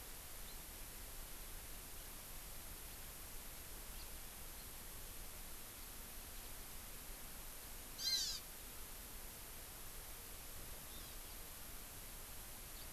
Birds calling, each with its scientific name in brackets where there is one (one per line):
Hawaii Amakihi (Chlorodrepanis virens)